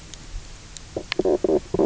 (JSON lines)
{"label": "biophony, knock croak", "recorder": "SoundTrap 300"}